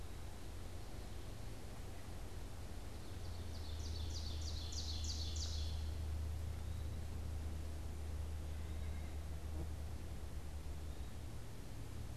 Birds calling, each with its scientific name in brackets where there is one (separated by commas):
White-breasted Nuthatch (Sitta carolinensis), Ovenbird (Seiurus aurocapilla), Eastern Wood-Pewee (Contopus virens)